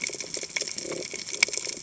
{"label": "biophony", "recorder": "HydroMoth"}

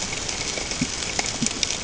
{"label": "ambient", "recorder": "HydroMoth"}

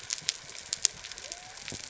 {"label": "biophony", "recorder": "SoundTrap 300"}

